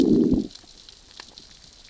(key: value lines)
label: biophony, growl
recorder: SoundTrap 600 or HydroMoth